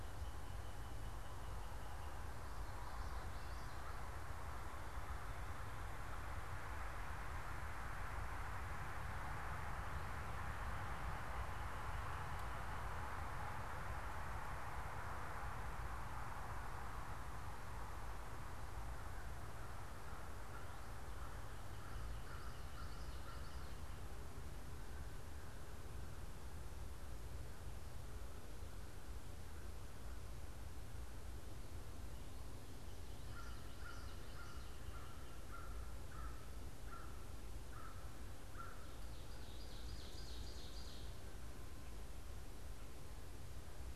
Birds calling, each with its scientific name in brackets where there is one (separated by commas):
Common Yellowthroat (Geothlypis trichas), American Crow (Corvus brachyrhynchos), Ovenbird (Seiurus aurocapilla)